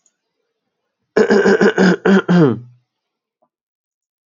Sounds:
Throat clearing